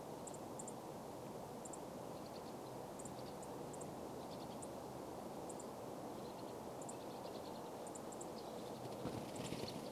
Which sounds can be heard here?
unidentified bird chip note, Pine Siskin song